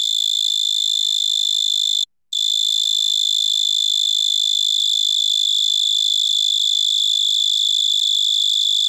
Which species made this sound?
Oecanthus dulcisonans